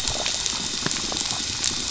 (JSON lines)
{"label": "anthrophony, boat engine", "recorder": "SoundTrap 500"}
{"label": "biophony, pulse", "recorder": "SoundTrap 500"}